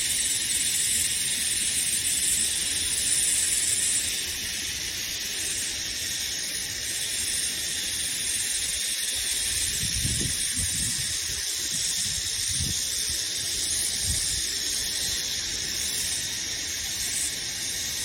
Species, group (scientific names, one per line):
Aleeta curvicosta
Cicadidae